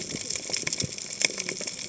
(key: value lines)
label: biophony, cascading saw
recorder: HydroMoth